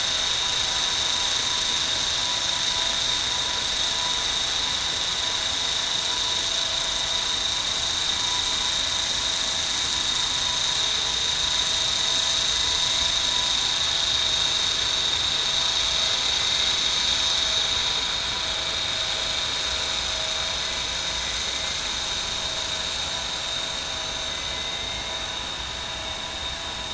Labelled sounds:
24.3	25.0	killer whale, southern resident, 2.0 to 2.2 kHz

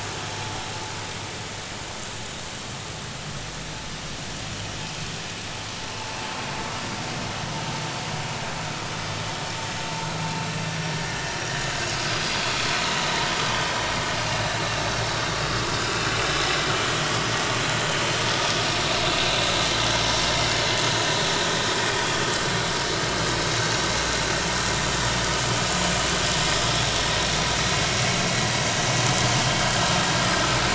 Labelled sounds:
11.9	12.5	vessel noise, 3.3 to 5.0 kHz
16.9	17.2	vessel noise, 3.1 to 3.5 kHz
28.5	28.8	vessel noise, 4.6 to 4.9 kHz

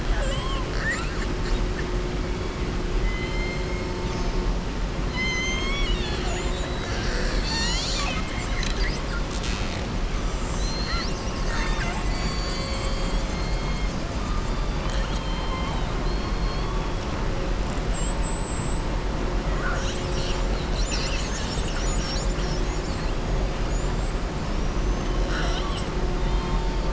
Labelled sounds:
0.0	1.3	killer whale, southern resident, 0.56 to 7.9 kHz
3.0	3.8	killer whale, southern resident, 2.0 to 3.1 kHz
14.5	16.7	killer whale, southern resident, 1.0 to 4.5 kHz
17.6	18.9	killer whale, southern resident, 7.3 to 8.0 kHz
24.7	25.9	killer whale, southern resident, 0.72 to 6.3 kHz

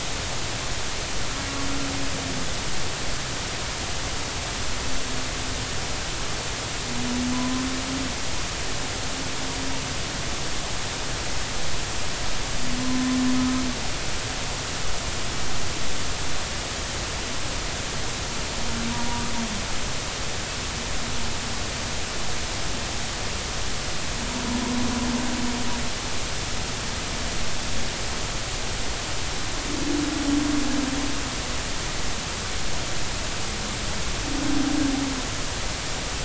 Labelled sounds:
7.3	7.6	humpback whale, 0.96 to 1.1 kHz
12.8	13.2	humpback whale, 0.96 to 1.1 kHz

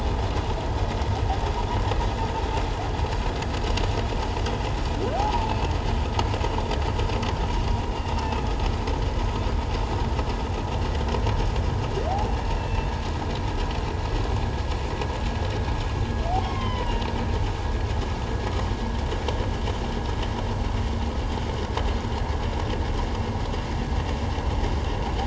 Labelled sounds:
5.1	5.5	humpback whale, 0.78 to 1.0 kHz
8.0	8.5	humpback whale, 2.6 to 2.8 kHz
12.6	12.9	humpback whale, 2.6 to 2.7 kHz
16.4	17.0	humpback whale, 0.91 to 3.3 kHz

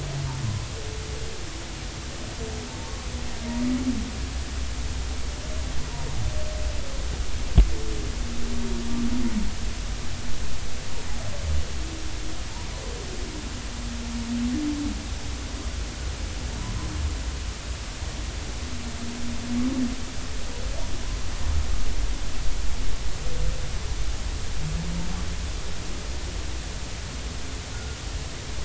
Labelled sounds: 27.7	28.0	humpback whale, 1.3 to 1.5 kHz

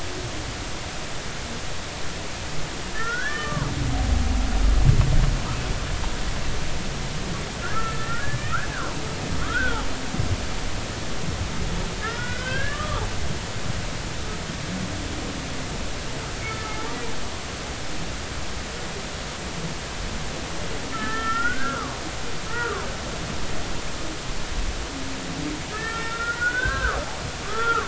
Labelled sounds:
2.9	3.7	humpback whale, 0.99 to 2.0 kHz
7.6	8.7	humpback whale, 1.2 to 2.0 kHz
9.4	9.8	humpback whale, 1.1 to 1.6 kHz
12.0	13.0	humpback whale, 1.1 to 3.6 kHz
16.4	16.8	humpback whale, 1.2 to 1.4 kHz
20.9	22.0	humpback whale, 0.93 to 2.0 kHz
22.5	22.9	humpback whale, 0.93 to 1.5 kHz
25.7	27.8	humpback whale, 0.99 to 2.0 kHz

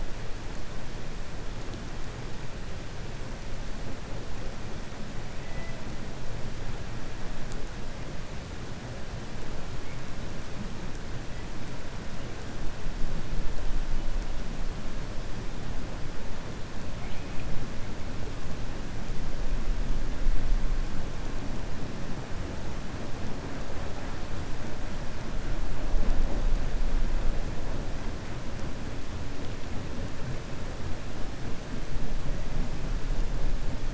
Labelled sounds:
5.4	5.8	killer whale, 1.9 to 2.7 kHz

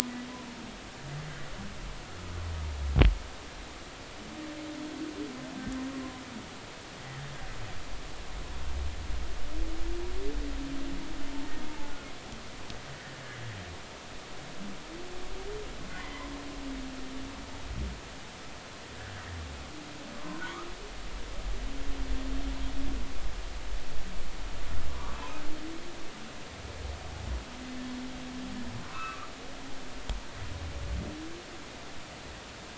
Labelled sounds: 7.0	7.3	humpback whale, 1.8 to 2.0 kHz
15.9	16.3	humpback whale, 1.9 to 2.1 kHz
24.9	25.4	humpback whale, 0.90 to 2.7 kHz
28.9	29.3	humpback whale, 0.96 to 2.7 kHz

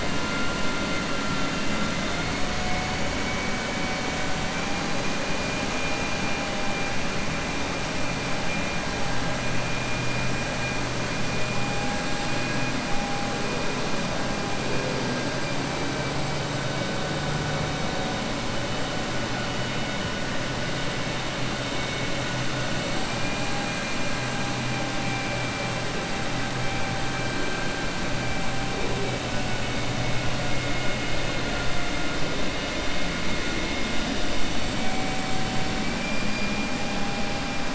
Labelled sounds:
35.7	36.1	vessel noise, 1.5 to 2.4 kHz

